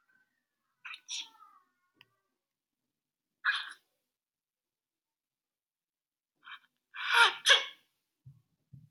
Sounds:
Sneeze